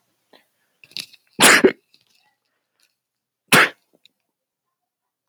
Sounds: Sneeze